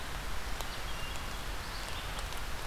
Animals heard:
Hermit Thrush (Catharus guttatus)
Red-eyed Vireo (Vireo olivaceus)

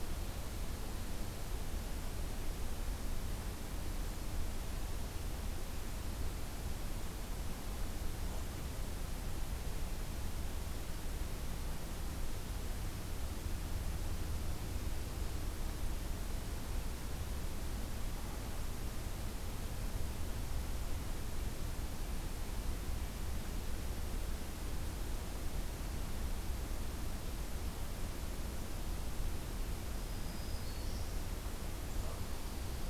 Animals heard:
Black-throated Green Warbler (Setophaga virens)

